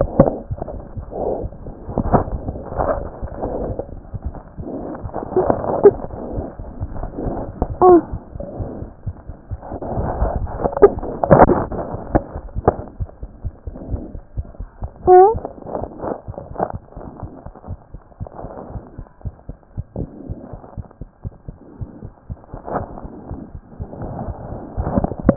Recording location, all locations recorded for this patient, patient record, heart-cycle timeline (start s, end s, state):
aortic valve (AV)
aortic valve (AV)+mitral valve (MV)
#Age: Child
#Sex: Female
#Height: 35.0 cm
#Weight: 12.0 kg
#Pregnancy status: False
#Murmur: Absent
#Murmur locations: nan
#Most audible location: nan
#Systolic murmur timing: nan
#Systolic murmur shape: nan
#Systolic murmur grading: nan
#Systolic murmur pitch: nan
#Systolic murmur quality: nan
#Diastolic murmur timing: nan
#Diastolic murmur shape: nan
#Diastolic murmur grading: nan
#Diastolic murmur pitch: nan
#Diastolic murmur quality: nan
#Outcome: Normal
#Campaign: 2014 screening campaign
0.00	17.57	unannotated
17.57	17.68	diastole
17.68	17.78	S1
17.78	17.94	systole
17.94	18.02	S2
18.02	18.22	diastole
18.22	18.30	S1
18.30	18.42	systole
18.42	18.52	S2
18.52	18.72	diastole
18.72	18.82	S1
18.82	18.98	systole
18.98	19.06	S2
19.06	19.24	diastole
19.24	19.34	S1
19.34	19.48	systole
19.48	19.58	S2
19.58	19.78	diastole
19.78	19.86	S1
19.86	19.98	systole
19.98	20.08	S2
20.08	20.30	diastole
20.30	20.38	S1
20.38	20.52	systole
20.52	20.62	S2
20.62	20.78	diastole
20.78	20.86	S1
20.86	21.00	systole
21.00	21.10	S2
21.10	21.26	diastole
21.26	21.34	S1
21.34	21.48	systole
21.48	21.58	S2
21.58	21.80	diastole
21.80	21.88	S1
21.88	22.02	systole
22.02	22.12	S2
22.12	22.32	diastole
22.32	22.38	S1
22.38	25.36	unannotated